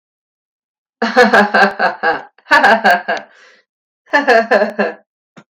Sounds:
Laughter